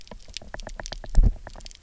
{"label": "biophony, knock", "recorder": "SoundTrap 300"}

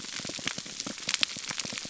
{"label": "biophony, pulse", "recorder": "SoundTrap 300"}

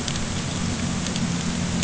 {"label": "anthrophony, boat engine", "recorder": "HydroMoth"}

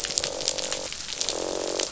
{"label": "biophony, croak", "recorder": "SoundTrap 500"}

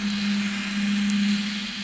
{"label": "anthrophony, boat engine", "recorder": "SoundTrap 500"}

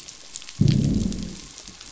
{"label": "biophony, growl", "recorder": "SoundTrap 500"}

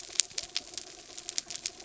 {"label": "anthrophony, mechanical", "recorder": "SoundTrap 300"}
{"label": "biophony", "recorder": "SoundTrap 300"}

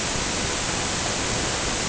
{"label": "ambient", "recorder": "HydroMoth"}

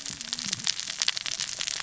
{"label": "biophony, cascading saw", "recorder": "SoundTrap 600 or HydroMoth"}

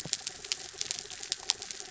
{"label": "anthrophony, mechanical", "recorder": "SoundTrap 300"}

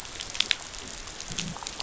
{"label": "biophony", "recorder": "SoundTrap 500"}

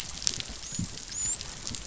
{"label": "biophony, dolphin", "recorder": "SoundTrap 500"}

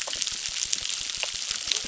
{"label": "biophony, crackle", "recorder": "SoundTrap 600"}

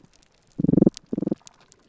{"label": "biophony", "recorder": "SoundTrap 300"}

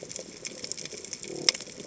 {"label": "biophony", "recorder": "HydroMoth"}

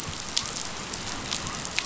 {"label": "biophony", "recorder": "SoundTrap 500"}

